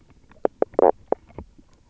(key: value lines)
label: biophony, knock croak
recorder: SoundTrap 300